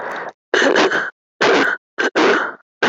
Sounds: Throat clearing